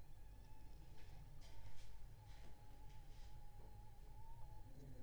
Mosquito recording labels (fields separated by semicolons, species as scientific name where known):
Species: Aedes aegypti; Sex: female; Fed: unfed; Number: one; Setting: cup